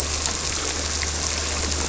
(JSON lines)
{"label": "anthrophony, boat engine", "recorder": "SoundTrap 300"}